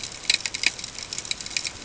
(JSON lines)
{"label": "ambient", "recorder": "HydroMoth"}